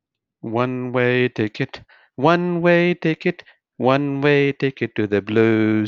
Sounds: Sigh